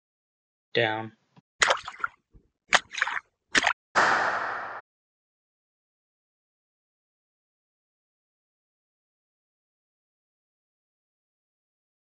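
At 0.75 seconds, someone says "down." After that, at 1.59 seconds, there is splashing. Finally, at 3.95 seconds, you can hear clapping.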